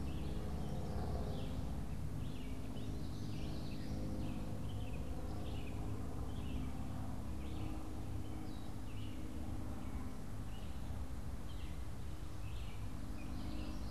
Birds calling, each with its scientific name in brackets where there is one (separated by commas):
Gray Catbird (Dumetella carolinensis), Red-eyed Vireo (Vireo olivaceus), Common Yellowthroat (Geothlypis trichas)